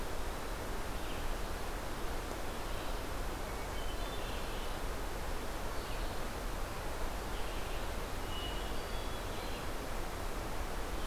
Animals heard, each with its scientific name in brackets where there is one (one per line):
Hermit Thrush (Catharus guttatus)